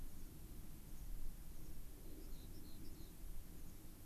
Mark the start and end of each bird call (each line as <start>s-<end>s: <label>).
0.0s-0.4s: American Pipit (Anthus rubescens)
0.8s-1.1s: American Pipit (Anthus rubescens)
1.4s-1.8s: American Pipit (Anthus rubescens)
2.1s-3.2s: American Pipit (Anthus rubescens)
2.1s-3.2s: Rock Wren (Salpinctes obsoletus)
3.5s-3.8s: American Pipit (Anthus rubescens)